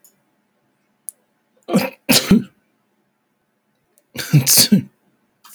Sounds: Sneeze